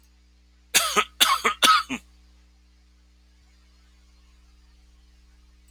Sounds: Cough